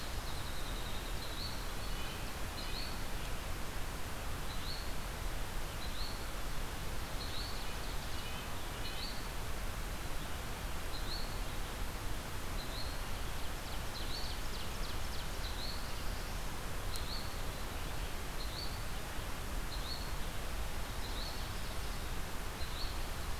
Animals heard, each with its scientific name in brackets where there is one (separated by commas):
Ovenbird (Seiurus aurocapilla), Yellow-bellied Flycatcher (Empidonax flaviventris), Red-breasted Nuthatch (Sitta canadensis), Winter Wren (Troglodytes hiemalis)